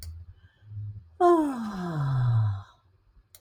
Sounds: Sigh